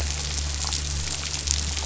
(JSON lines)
{"label": "anthrophony, boat engine", "recorder": "SoundTrap 500"}